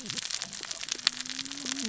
{"label": "biophony, cascading saw", "recorder": "SoundTrap 600 or HydroMoth"}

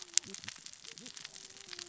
{"label": "biophony, cascading saw", "recorder": "SoundTrap 600 or HydroMoth"}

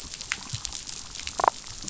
{"label": "biophony, damselfish", "recorder": "SoundTrap 500"}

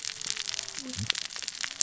{"label": "biophony, cascading saw", "recorder": "SoundTrap 600 or HydroMoth"}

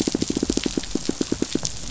{"label": "biophony, pulse", "recorder": "SoundTrap 500"}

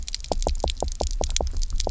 {"label": "biophony, knock croak", "recorder": "SoundTrap 300"}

